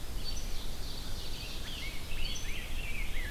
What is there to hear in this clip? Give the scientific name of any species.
Seiurus aurocapilla, Pheucticus ludovicianus